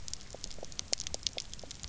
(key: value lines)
label: biophony, pulse
recorder: SoundTrap 300